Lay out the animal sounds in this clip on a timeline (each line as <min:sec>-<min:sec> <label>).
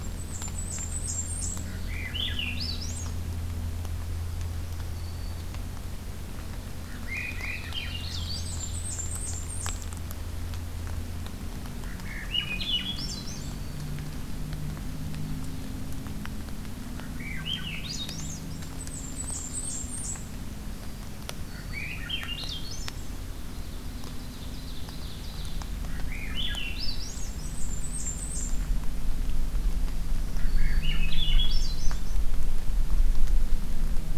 0:00.0-0:01.7 Blackburnian Warbler (Setophaga fusca)
0:01.6-0:03.2 Swainson's Thrush (Catharus ustulatus)
0:04.9-0:05.5 Black-throated Green Warbler (Setophaga virens)
0:06.8-0:08.5 Swainson's Thrush (Catharus ustulatus)
0:07.0-0:08.9 Ovenbird (Seiurus aurocapilla)
0:08.1-0:09.9 Blackburnian Warbler (Setophaga fusca)
0:11.8-0:13.6 Swainson's Thrush (Catharus ustulatus)
0:13.3-0:13.8 Black-throated Green Warbler (Setophaga virens)
0:16.9-0:18.4 Swainson's Thrush (Catharus ustulatus)
0:18.5-0:20.3 Blackburnian Warbler (Setophaga fusca)
0:18.9-0:19.9 Ovenbird (Seiurus aurocapilla)
0:20.7-0:22.0 Black-throated Green Warbler (Setophaga virens)
0:21.4-0:23.2 Swainson's Thrush (Catharus ustulatus)
0:23.5-0:25.6 Ovenbird (Seiurus aurocapilla)
0:25.8-0:28.7 Swainson's Thrush (Catharus ustulatus)
0:29.8-0:31.1 Black-throated Green Warbler (Setophaga virens)
0:30.3-0:32.2 Swainson's Thrush (Catharus ustulatus)